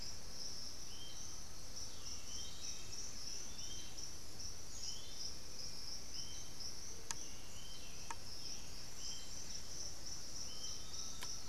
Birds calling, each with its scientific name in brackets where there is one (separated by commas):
Bluish-fronted Jacamar (Galbula cyanescens), Black-billed Thrush (Turdus ignobilis), Undulated Tinamou (Crypturellus undulatus), unidentified bird, Piratic Flycatcher (Legatus leucophaius)